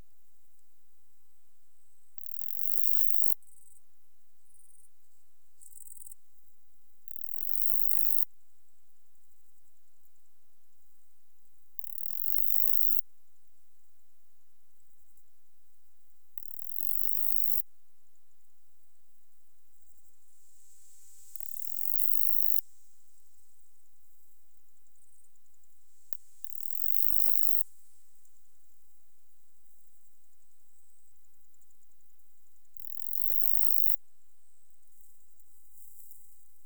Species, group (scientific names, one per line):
Saga hellenica
Orthoptera